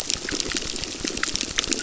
{"label": "biophony, crackle", "recorder": "SoundTrap 600"}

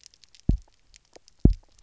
{"label": "biophony, double pulse", "recorder": "SoundTrap 300"}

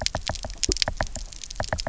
{"label": "biophony, knock", "recorder": "SoundTrap 300"}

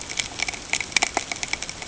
{"label": "ambient", "recorder": "HydroMoth"}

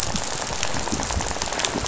{"label": "biophony, rattle", "recorder": "SoundTrap 500"}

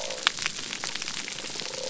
{"label": "biophony", "recorder": "SoundTrap 300"}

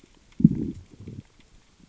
{"label": "biophony, growl", "recorder": "SoundTrap 600 or HydroMoth"}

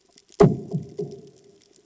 {"label": "anthrophony, bomb", "recorder": "HydroMoth"}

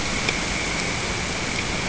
{"label": "ambient", "recorder": "HydroMoth"}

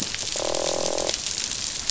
{"label": "biophony, croak", "recorder": "SoundTrap 500"}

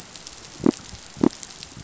{"label": "biophony", "recorder": "SoundTrap 500"}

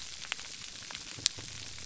{"label": "biophony", "recorder": "SoundTrap 300"}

